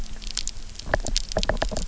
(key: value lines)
label: biophony, knock
recorder: SoundTrap 300